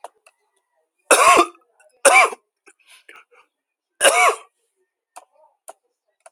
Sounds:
Cough